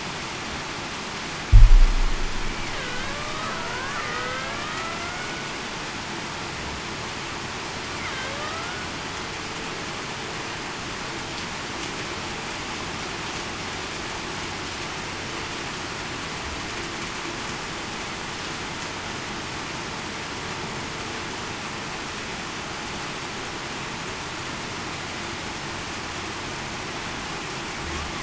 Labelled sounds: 2.8	3.7	killer whale, Bigg's (transient), 1.1 to 1.7 kHz
4.1	5.0	killer whale, Bigg's (transient), 0.47 to 2.0 kHz
8.3	8.9	killer whale, Bigg's (transient), 1.1 to 1.5 kHz

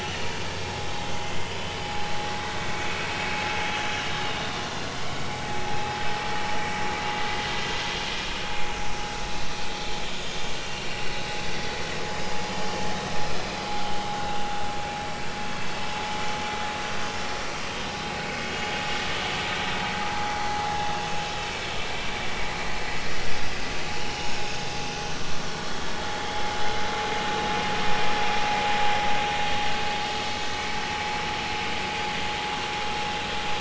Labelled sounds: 1.2	2.6	vessel noise, 2.0 to 4.1 kHz
4.2	4.5	vessel noise, 2.8 to 2.9 kHz
10.1	11.1	vessel noise, 2.7 to 6.8 kHz
14.2	14.5	vessel noise, 2.6 to 2.9 kHz
18.2	18.5	vessel noise, 2.1 to 2.3 kHz
23.1	23.3	vessel noise, 5.6 to 5.8 kHz
24.0	24.3	vessel noise, 2.8 to 3.0 kHz
25.5	26.5	vessel noise, 3.1 to 4.3 kHz

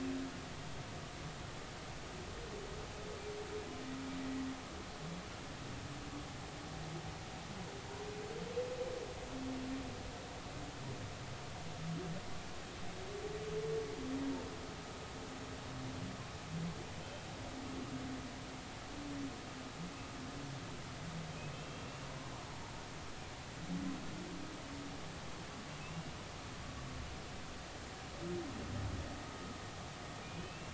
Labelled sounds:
17.0	17.3	humpback whale, 3.0 to 3.2 kHz
21.5	22.1	humpback whale, 2.6 to 2.8 kHz
25.8	26.1	humpback whale, 2.5 to 2.8 kHz
30.2	30.7	humpback whale, 2.3 to 2.8 kHz

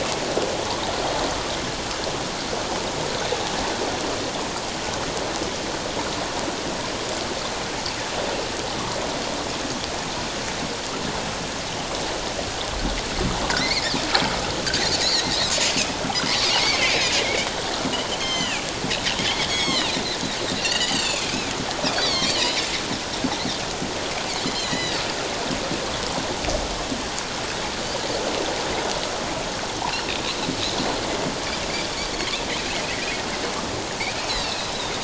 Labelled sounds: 13.6	13.9	Pacific white-sided dolphin, 1.8 to 2.5 kHz
15.0	15.3	Pacific white-sided dolphin, 3.7 to 4.8 kHz
17.2	17.5	Pacific white-sided dolphin, 2.1 to 2.4 kHz
18.2	21.5	Pacific white-sided dolphin, 1.6 to 7.8 kHz
21.9	22.6	Pacific white-sided dolphin, 2.0 to 4.8 kHz
24.5	25.0	Pacific white-sided dolphin, 1.8 to 7.4 kHz
29.9	30.4	Pacific white-sided dolphin, 2.3 to 4.3 kHz
34.3	34.7	Pacific white-sided dolphin, 2.5 to 4.5 kHz

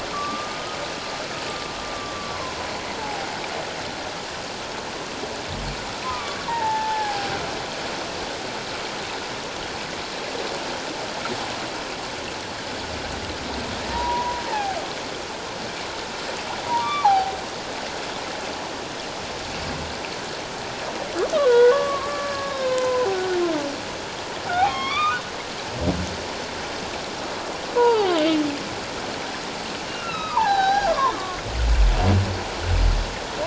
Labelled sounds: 0.1	0.8	humpback whale, 1.1 to 1.3 kHz
1.9	3.3	humpback whale, 0.78 to 1.2 kHz
6.1	7.3	humpback whale, 0.78 to 1.9 kHz
13.9	14.8	humpback whale, 0.78 to 1.1 kHz
16.6	17.4	humpback whale, 0.78 to 2.4 kHz
21.4	23.4	humpback whale, 0.91 to 1.8 kHz
24.5	25.2	humpback whale, 0.78 to 3.8 kHz
27.8	28.1	humpback whale, 0.78 to 4.8 kHz
29.9	31.4	humpback whale, 0.78 to 5.8 kHz

